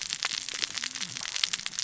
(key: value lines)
label: biophony, cascading saw
recorder: SoundTrap 600 or HydroMoth